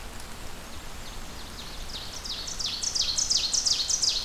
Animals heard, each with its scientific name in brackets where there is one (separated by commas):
Ovenbird (Seiurus aurocapilla), Black-and-white Warbler (Mniotilta varia)